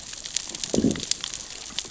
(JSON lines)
{"label": "biophony, growl", "recorder": "SoundTrap 600 or HydroMoth"}